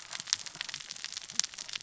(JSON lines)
{"label": "biophony, cascading saw", "recorder": "SoundTrap 600 or HydroMoth"}